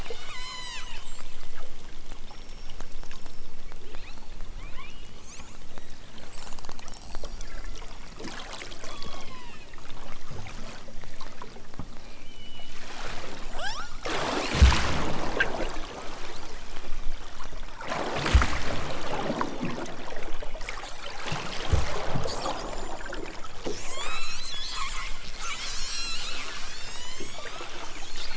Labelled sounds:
0.4	1.6	killer whale, southern Alaska resident, 0.46 to 8.0 kHz
3.8	6.1	killer whale, southern Alaska resident, 1.3 to 4.8 kHz
6.7	8.0	killer whale, southern Alaska resident, 0.92 to 6.0 kHz
8.8	9.6	killer whale, southern Alaska resident, 0.65 to 5.4 kHz
11.9	12.9	killer whale, southern Alaska resident, 2.0 to 3.2 kHz
13.5	13.9	killer whale, southern Alaska resident, 0.28 to 8.0 kHz
15.4	17.7	killer whale, southern Alaska resident, 1.9 to 6.1 kHz
19.1	19.8	killer whale, southern Alaska resident, 2.5 to 6.0 kHz
20.2	20.6	killer whale, southern Alaska resident, 1.8 to 3.7 kHz
23.8	24.6	killer whale, southern Alaska resident, 0.74 to 6.5 kHz
26.6	27.7	killer whale, southern Alaska resident, 0.51 to 8.0 kHz

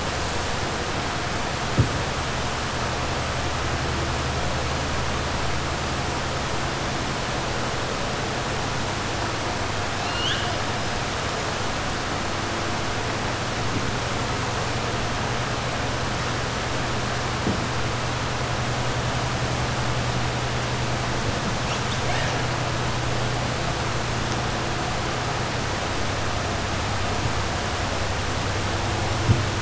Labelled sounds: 9.9	10.5	killer whale, 1.5 to 6.5 kHz

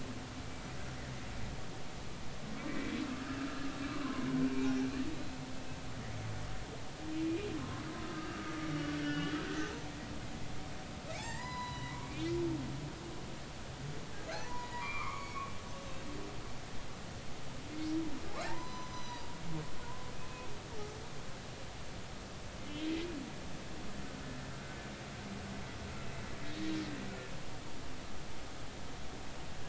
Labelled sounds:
3.9	4.8	humpback whale, 0.80 to 2.6 kHz
5.1	5.4	humpback whale, 3.8 to 4.1 kHz
7.2	9.9	humpback whale, 0.83 to 6.3 kHz
11.2	12.3	humpback whale, 0.80 to 6.0 kHz
14.3	15.4	humpback whale, 0.80 to 6.2 kHz
18.5	19.2	humpback whale, 0.86 to 6.1 kHz
20.1	20.5	humpback whale, 2.4 to 2.6 kHz

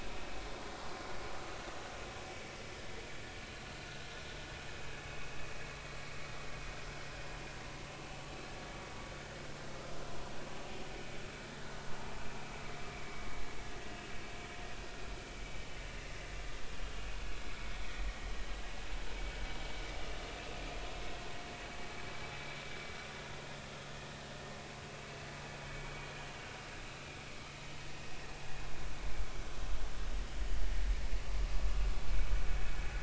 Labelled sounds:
2.3	2.5	vessel noise, 2.2 to 2.3 kHz
5.1	5.3	vessel noise, 2.5 to 2.7 kHz
12.9	14.1	vessel noise, 2.2 to 2.9 kHz
20.9	21.2	vessel noise, 2.1 to 2.2 kHz

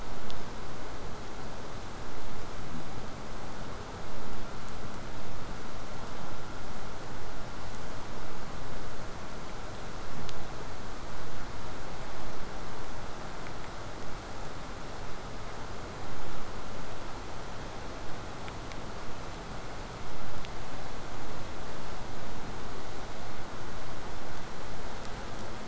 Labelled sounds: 0.0	1.0	vessel noise, 0.05 to 2.0 kHz

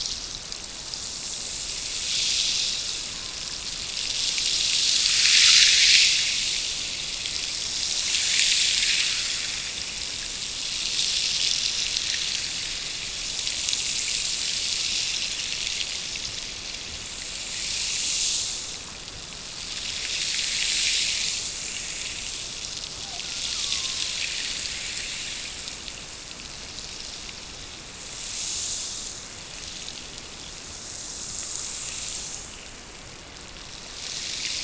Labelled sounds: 23.0	24.2	killer whale, Bigg's (transient), Gulf of Alaska transient, 0.55 to 1.6 kHz

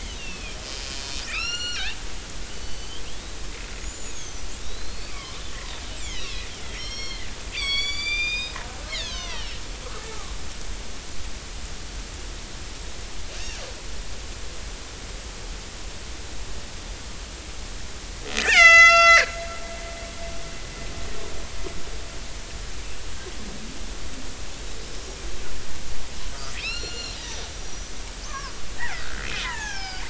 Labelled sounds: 0.1	2.0	killer whale, northern resident, A clan, 1.2 to 7.3 kHz
2.6	3.0	killer whale, northern resident, A clan, 2.9 to 4.7 kHz
3.8	8.6	killer whale, northern resident, A clan, 0.99 to 8.0 kHz
8.9	9.6	killer whale, northern resident, A clan, 0.83 to 7.0 kHz
18.3	19.4	killer whale, northern resident, A clan, 1.3 to 8.0 kHz
26.6	30.0	killer whale, northern resident, 0.80 to 7.2 kHz

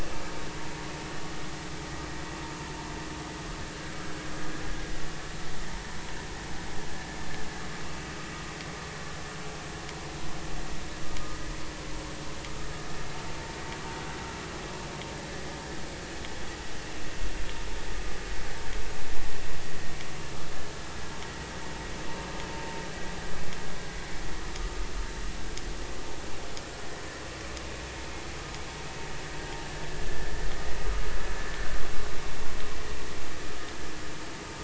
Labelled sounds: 30.1	30.3	vessel noise, 1.6 to 1.8 kHz

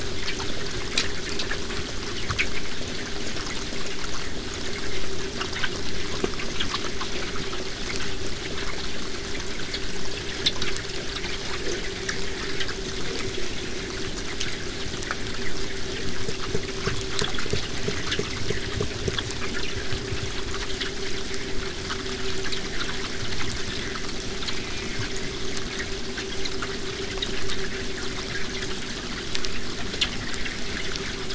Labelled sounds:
24.4	25.1	killer whale, southern resident, J pod, call S04, 1.6 to 2.9 kHz

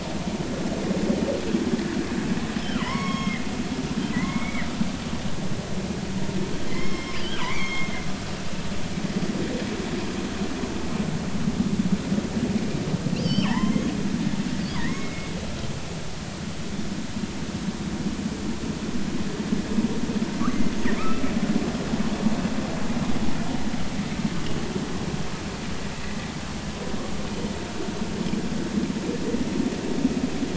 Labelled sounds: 2.6	3.5	killer whale, northern resident, G clan, call N23i, 0.93 to 5.6 kHz
4.1	4.7	killer whale, northern resident, G clan, call N23i, 1.8 to 2.3 kHz
6.7	7.9	killer whale, northern resident, G clan, call N23i, 0.96 to 5.4 kHz
13.2	13.9	killer whale, northern resident, G clan, call N23i, 0.83 to 5.4 kHz
14.8	15.3	killer whale, northern resident, G clan, call N23i, 1.8 to 2.2 kHz
21.0	21.2	killer whale, northern resident, G clan, call N23i, 1.2 to 1.4 kHz
22.0	22.2	killer whale, northern resident, G clan, call N23i, 2.1 to 2.7 kHz

